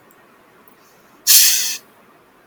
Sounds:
Sniff